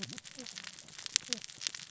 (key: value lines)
label: biophony, cascading saw
recorder: SoundTrap 600 or HydroMoth